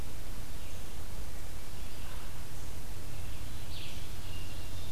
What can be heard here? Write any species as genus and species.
Vireo olivaceus, Catharus guttatus